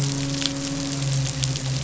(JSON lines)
{"label": "biophony, midshipman", "recorder": "SoundTrap 500"}